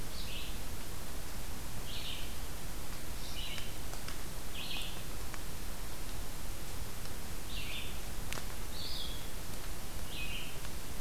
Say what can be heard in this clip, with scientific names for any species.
Vireo olivaceus